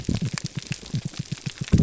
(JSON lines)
{"label": "biophony, pulse", "recorder": "SoundTrap 300"}